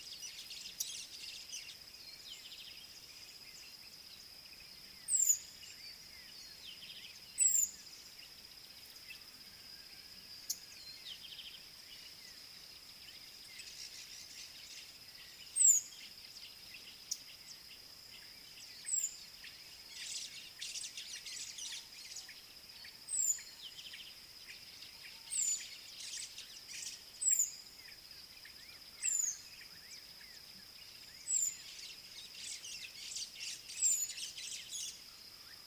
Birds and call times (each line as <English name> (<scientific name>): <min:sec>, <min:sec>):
White-browed Sparrow-Weaver (Plocepasser mahali): 0:20.7, 0:33.5
Southern Black-Flycatcher (Melaenornis pammelaina): 0:23.2, 0:27.4, 0:31.3